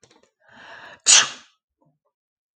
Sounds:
Sneeze